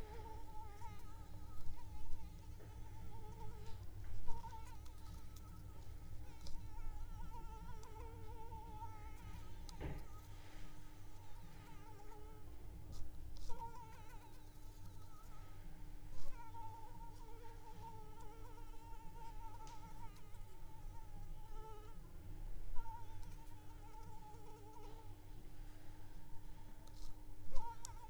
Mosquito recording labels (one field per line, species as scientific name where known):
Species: Anopheles arabiensis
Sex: female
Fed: unfed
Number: one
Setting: cup